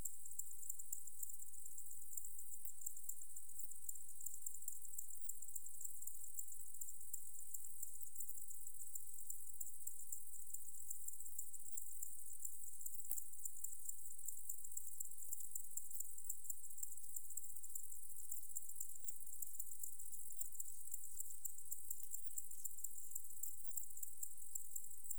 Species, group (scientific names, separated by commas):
Tessellana tessellata, Orthoptera